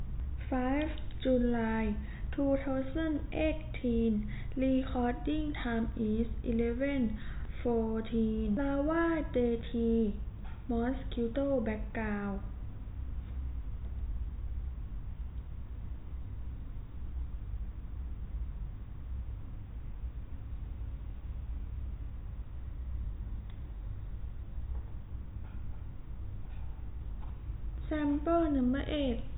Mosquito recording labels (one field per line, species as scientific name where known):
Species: no mosquito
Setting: cup